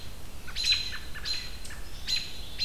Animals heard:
American Robin (Turdus migratorius)

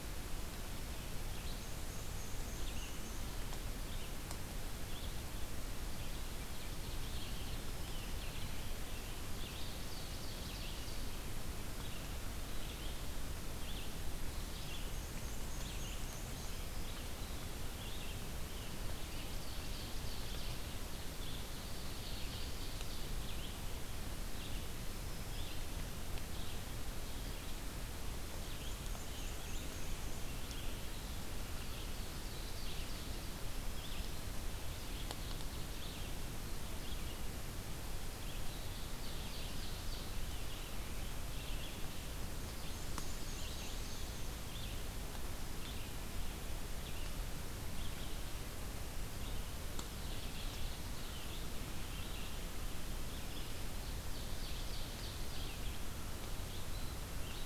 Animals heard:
Black-throated Green Warbler (Setophaga virens), Black-and-white Warbler (Mniotilta varia), Ovenbird (Seiurus aurocapilla), Red-eyed Vireo (Vireo olivaceus)

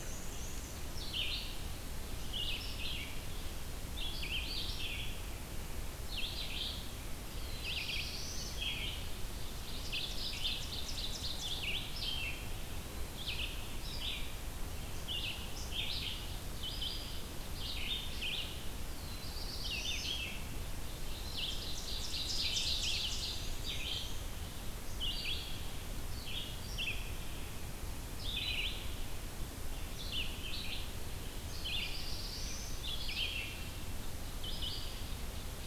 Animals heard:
Ovenbird (Seiurus aurocapilla), Red-eyed Vireo (Vireo olivaceus), Black-throated Blue Warbler (Setophaga caerulescens), Black-and-white Warbler (Mniotilta varia)

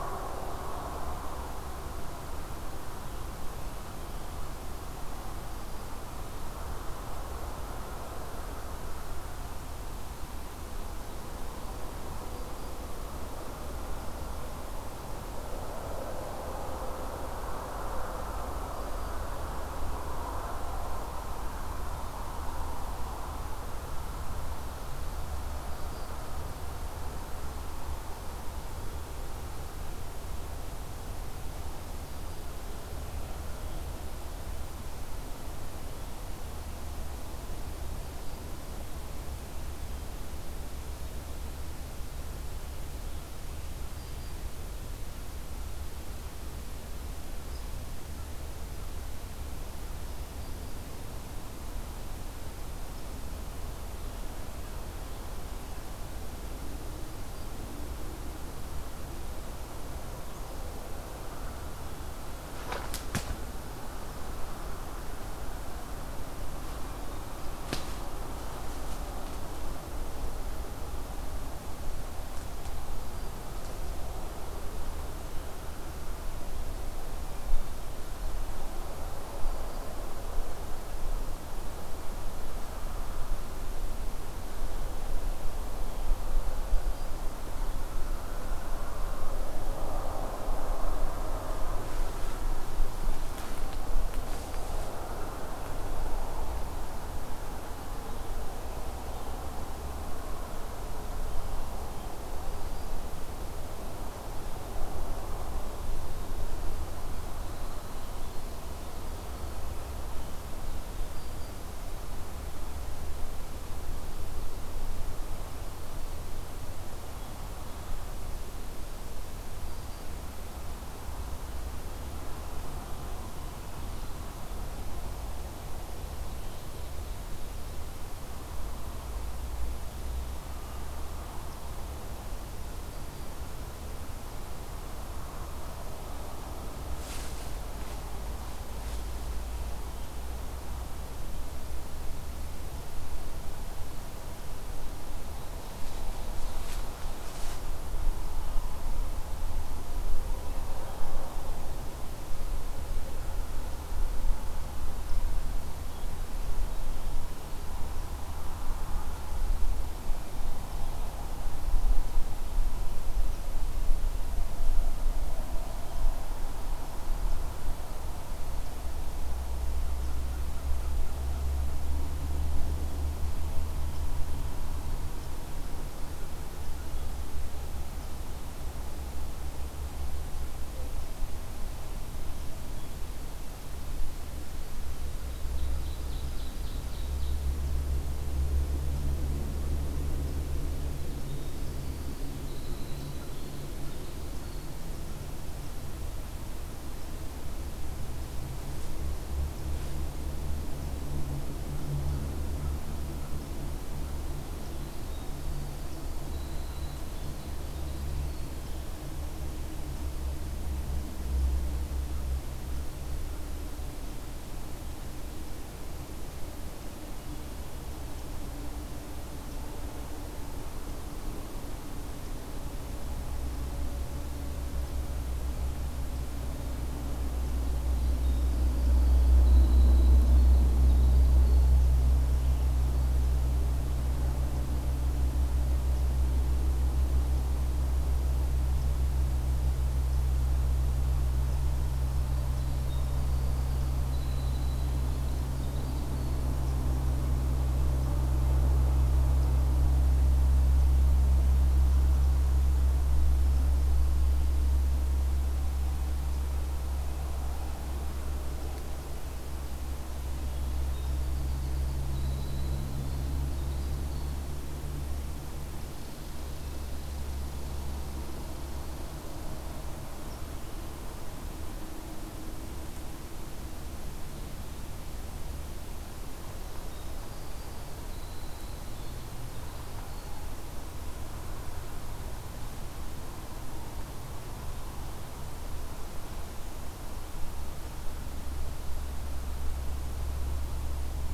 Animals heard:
Winter Wren (Troglodytes hiemalis), Ovenbird (Seiurus aurocapilla), Black-throated Green Warbler (Setophaga virens)

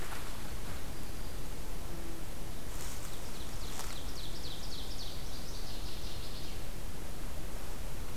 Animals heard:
Northern Waterthrush (Parkesia noveboracensis), Ovenbird (Seiurus aurocapilla), Black-throated Green Warbler (Setophaga virens)

